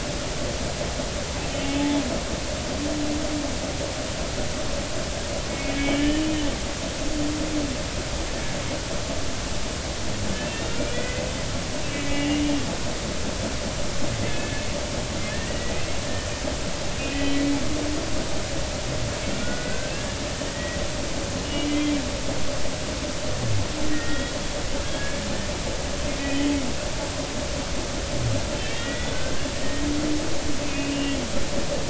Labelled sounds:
5.5	6.3	humpback whale, 1.7 to 3.1 kHz
10.4	11.2	humpback whale, 1.9 to 2.8 kHz
11.8	12.7	humpback whale, 1.9 to 3.1 kHz
14.3	14.6	humpback whale, 1.6 to 1.8 kHz
15.3	15.7	humpback whale, 1.6 to 2.0 kHz
16.0	16.3	humpback whale, 1.7 to 1.9 kHz
17.3	17.5	humpback whale, 2.2 to 2.3 kHz
19.4	19.9	humpback whale, 1.4 to 1.6 kHz
20.5	20.8	humpback whale, 1.8 to 2.0 kHz
21.4	21.9	humpback whale, 2.0 to 3.0 kHz
23.9	25.3	humpback whale, 1.4 to 3.4 kHz
26.2	26.5	humpback whale, 1.9 to 2.0 kHz
28.6	29.5	humpback whale, 1.5 to 3.5 kHz
30.6	31.2	humpback whale, 2.4 to 3.1 kHz

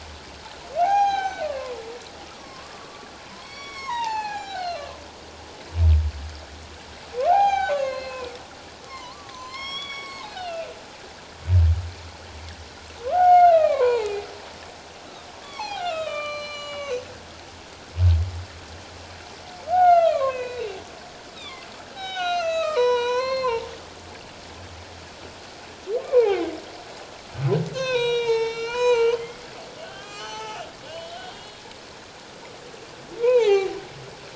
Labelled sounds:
0.8	1.8	humpback whale, 0.78 to 6.5 kHz
2.3	4.9	humpback whale, 0.78 to 6.3 kHz
7.3	8.3	humpback whale, 0.78 to 6.5 kHz
8.9	10.7	humpback whale, 0.81 to 7.9 kHz
13.0	14.3	humpback whale, 0.78 to 4.3 kHz
15.4	17.0	humpback whale, 0.78 to 7.2 kHz
19.6	20.7	humpback whale, 0.78 to 4.0 kHz
21.3	23.7	humpback whale, 0.78 to 7.8 kHz
26.0	26.5	humpback whale, 0.78 to 2.5 kHz
27.7	29.5	humpback whale, 0.84 to 6.6 kHz
29.8	31.6	humpback whale, 0.78 to 6.2 kHz
33.2	33.8	humpback whale, 0.78 to 2.7 kHz

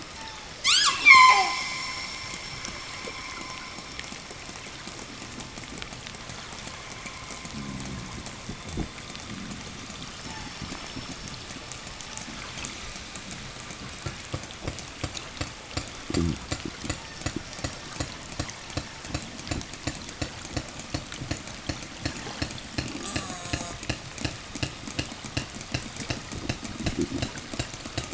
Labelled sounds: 0.1	2.6	killer whale, southern resident, 0 to 8.0 kHz
10.0	13.6	killer whale, southern resident, 0.62 to 5.9 kHz
16.6	19.3	killer whale, southern resident, 0.77 to 6.0 kHz
22.6	24.2	killer whale, southern resident, call S04, 0.37 to 8.0 kHz

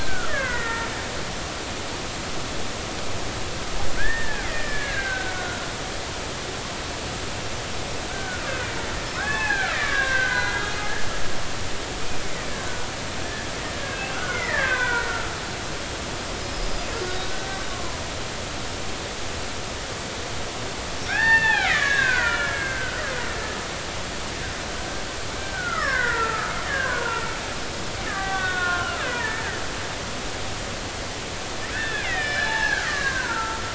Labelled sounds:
0.0	0.9	killer whale, Bigg's (transient), 0.93 to 2.3 kHz
4.0	5.7	killer whale, Bigg's (transient), 1.3 to 2.5 kHz
8.1	8.8	killer whale, Bigg's (transient), 1.3 to 2.7 kHz
9.1	10.7	killer whale, Bigg's (transient), 0.80 to 2.8 kHz
13.8	15.3	killer whale, Bigg's (transient), 1.3 to 3.6 kHz
17.2	18.0	killer whale, Bigg's (transient), 0.86 to 1.6 kHz
21.1	23.0	killer whale, Bigg's (transient), 0.80 to 4.5 kHz
23.4	23.7	killer whale, Bigg's (transient), 1.2 to 1.3 kHz
25.4	27.4	killer whale, Bigg's (transient), 0.83 to 3.1 kHz
28.1	29.5	killer whale, Bigg's (transient), 0.80 to 3.8 kHz
31.7	33.7	killer whale, Bigg's (transient), 0.80 to 4.2 kHz

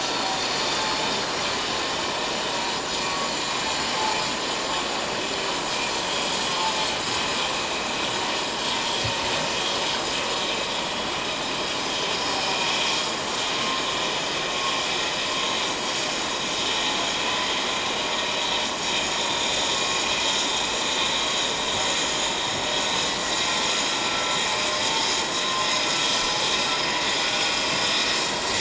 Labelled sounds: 3.0	3.6	vessel noise, 1.1 to 4.1 kHz
6.1	6.4	vessel noise, 3.2 to 3.3 kHz
12.1	12.7	vessel noise, 2.3 to 5.6 kHz
13.4	13.6	vessel noise, 6.2 to 6.7 kHz
18.3	18.6	vessel noise, 3.7 to 3.9 kHz
24.0	24.4	vessel noise, 1.3 to 1.4 kHz

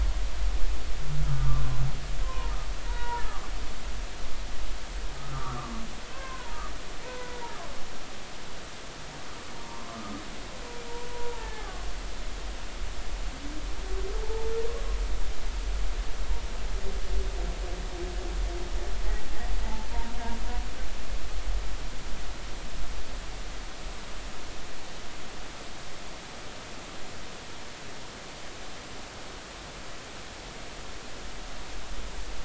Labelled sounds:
1.3	2.5	humpback whale, 0.90 to 1.5 kHz
2.9	3.5	humpback whale, 0.90 to 2.0 kHz
5.3	6.6	humpback whale, 0.90 to 1.7 kHz
7.0	7.4	humpback whale, 0.90 to 1.1 kHz
9.5	9.9	humpback whale, 0.90 to 1.1 kHz
11.3	11.7	humpback whale, 0.80 to 1.8 kHz
14.2	14.5	humpback whale, 0.80 to 0.96 kHz

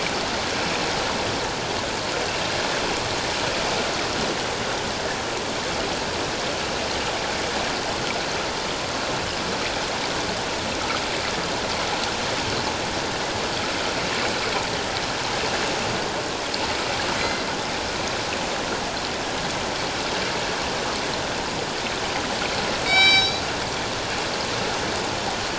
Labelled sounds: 17.2	17.4	killer whale, northern resident, G clan, 2.0 to 2.1 kHz
22.9	23.4	killer whale, northern resident, G clan, 2.2 to 7.8 kHz

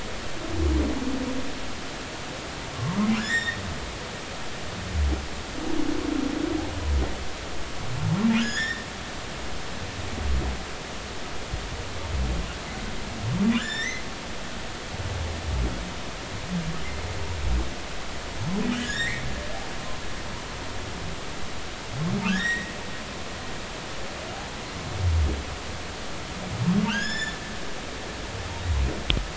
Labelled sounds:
2.7	3.6	humpback whale, 0.99 to 7.2 kHz
8.4	8.9	humpback whale, 1.6 to 7.1 kHz
13.6	14.0	humpback whale, 1.2 to 7.4 kHz
18.8	19.3	humpback whale, 1.6 to 7.6 kHz
22.2	22.7	humpback whale, 1.1 to 5.7 kHz
26.9	27.4	humpback whale, 1.3 to 7.1 kHz

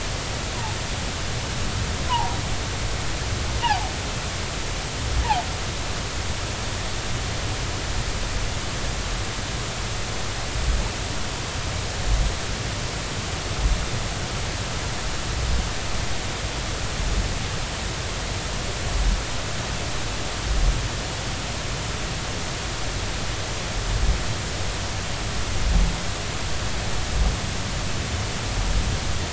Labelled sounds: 3.1	3.9	humpback whale, 0.80 to 1.1 kHz

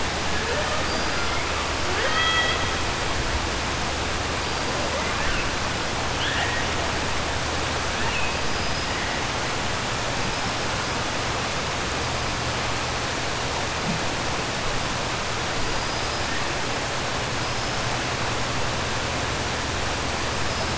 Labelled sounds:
1.8	2.6	killer whale, 0.45 to 6.5 kHz
8.5	8.9	killer whale, 4.9 to 5.1 kHz
15.7	16.2	killer whale, 4.8 to 5.1 kHz

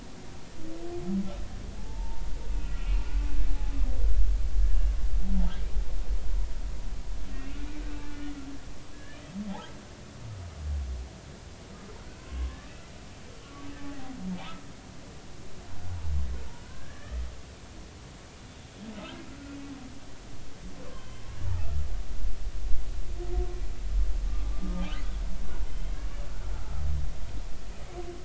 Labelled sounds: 1.8	3.1	humpback whale, 0.83 to 3.1 kHz
8.9	9.3	humpback whale, 1.6 to 3.1 kHz
12.2	12.6	humpback whale, 0.99 to 1.2 kHz
13.4	13.7	humpback whale, 1.1 to 1.2 kHz
16.6	17.2	humpback whale, 1.4 to 2.0 kHz
18.9	19.2	humpback whale, 1.2 to 1.4 kHz
20.9	21.2	humpback whale, 3.0 to 3.2 kHz
24.5	25.9	humpback whale, 1.1 to 3.2 kHz

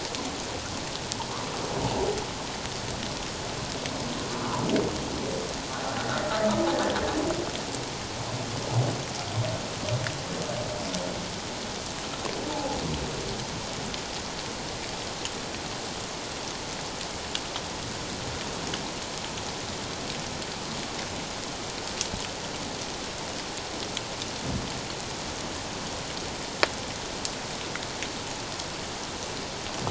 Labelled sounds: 12.5	12.8	humpback whale, 0.78 to 0.94 kHz

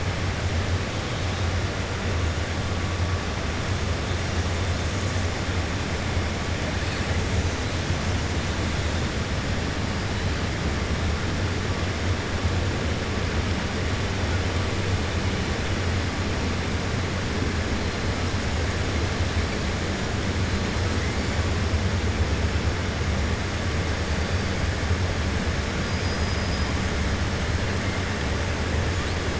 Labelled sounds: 25.8	26.7	killer whale, 4.0 to 5.7 kHz

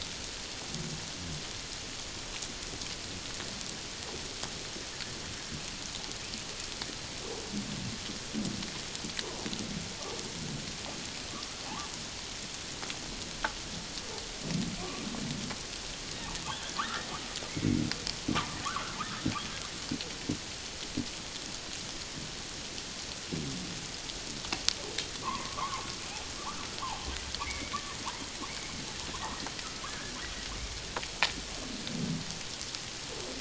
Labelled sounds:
16.8	17.8	humpback whale, 0.84 to 2.3 kHz
18.3	19.2	humpback whale, 0.88 to 1.8 kHz
25.2	25.9	humpback whale, 0.81 to 1.3 kHz
27.5	28.0	humpback whale, 1.7 to 2.3 kHz
29.1	29.4	humpback whale, 0.78 to 1.3 kHz
29.9	30.1	humpback whale, 1.5 to 1.8 kHz

